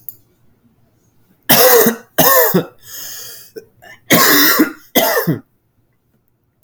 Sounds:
Cough